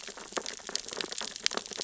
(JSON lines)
{"label": "biophony, sea urchins (Echinidae)", "recorder": "SoundTrap 600 or HydroMoth"}